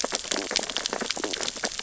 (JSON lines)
{"label": "biophony, stridulation", "recorder": "SoundTrap 600 or HydroMoth"}
{"label": "biophony, sea urchins (Echinidae)", "recorder": "SoundTrap 600 or HydroMoth"}